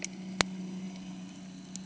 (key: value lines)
label: anthrophony, boat engine
recorder: HydroMoth